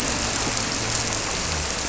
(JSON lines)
{"label": "anthrophony, boat engine", "recorder": "SoundTrap 300"}